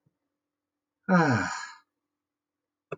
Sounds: Sigh